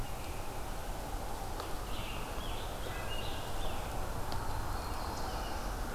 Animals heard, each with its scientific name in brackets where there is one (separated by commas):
Scarlet Tanager (Piranga olivacea), Black-throated Blue Warbler (Setophaga caerulescens)